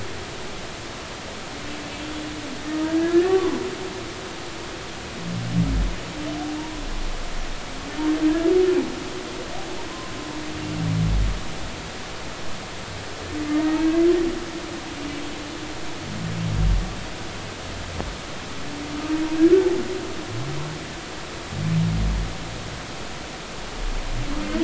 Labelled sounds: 3.0	3.6	humpback whale, 0.96 to 1.9 kHz
6.6	6.8	humpback whale, 0.86 to 1.0 kHz
13.5	13.8	humpback whale, 1.8 to 1.9 kHz

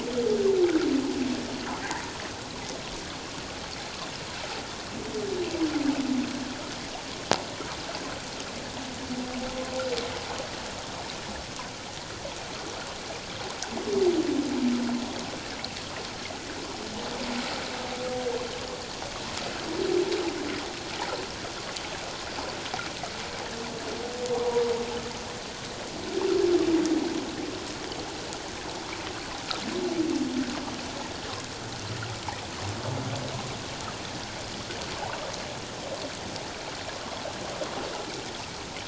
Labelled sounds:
24.3	24.6	humpback whale, 0.91 to 1.1 kHz

